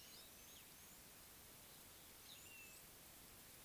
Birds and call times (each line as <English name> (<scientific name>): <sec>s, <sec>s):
Blue-naped Mousebird (Urocolius macrourus): 2.6s